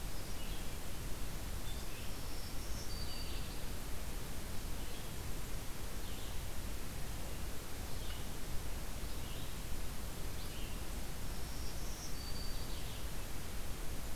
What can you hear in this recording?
Red-eyed Vireo, Black-throated Green Warbler